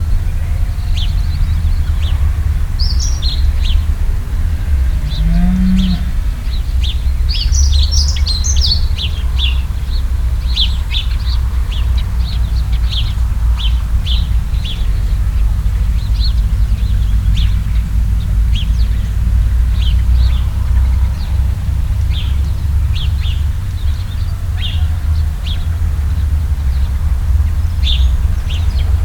what animal makes a noise other than the birds?
cow